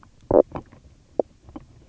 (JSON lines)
{"label": "biophony, knock croak", "recorder": "SoundTrap 300"}